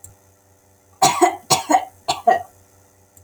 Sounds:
Cough